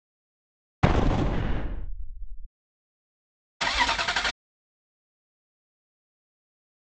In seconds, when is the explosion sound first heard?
0.8 s